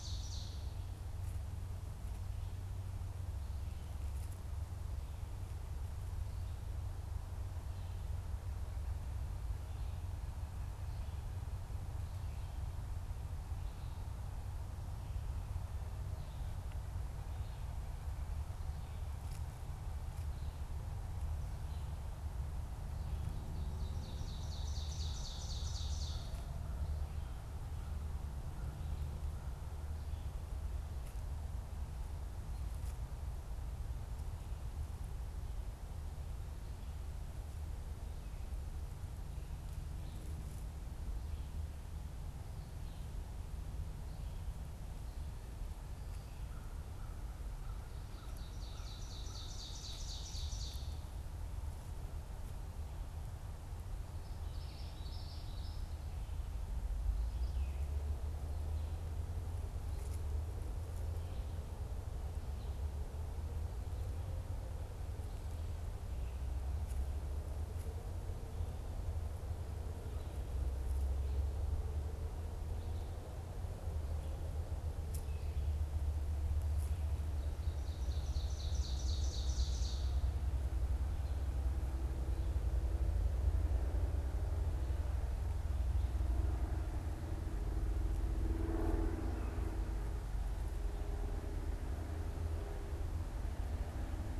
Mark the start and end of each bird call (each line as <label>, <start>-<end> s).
Ovenbird (Seiurus aurocapilla), 0.0-1.0 s
Ovenbird (Seiurus aurocapilla), 23.4-26.4 s
American Crow (Corvus brachyrhynchos), 46.3-49.4 s
Ovenbird (Seiurus aurocapilla), 47.9-51.4 s
Common Yellowthroat (Geothlypis trichas), 53.9-56.1 s
Ovenbird (Seiurus aurocapilla), 77.1-80.4 s